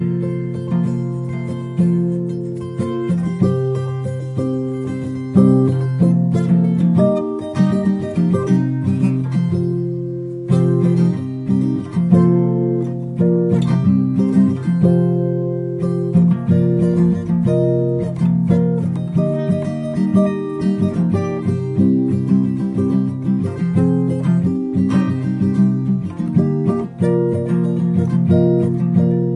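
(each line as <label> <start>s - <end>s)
An acoustic guitar plays loudly with different rhythms. 0.1s - 29.3s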